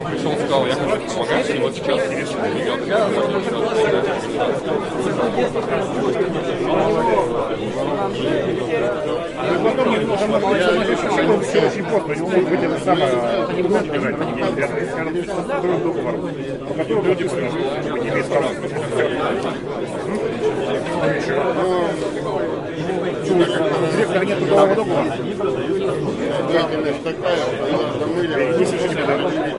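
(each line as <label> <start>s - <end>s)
People are talking loudly in Russian in a steady pattern indoors. 0.1s - 29.6s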